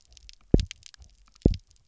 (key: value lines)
label: biophony, double pulse
recorder: SoundTrap 300